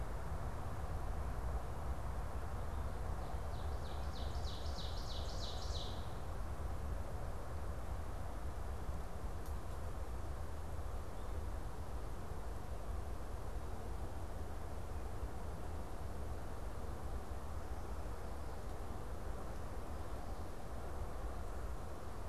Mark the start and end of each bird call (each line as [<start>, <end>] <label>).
[3.10, 6.20] Ovenbird (Seiurus aurocapilla)